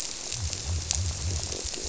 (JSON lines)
{"label": "biophony", "recorder": "SoundTrap 300"}